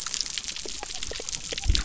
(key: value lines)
label: biophony
recorder: SoundTrap 300